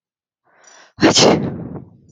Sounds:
Sneeze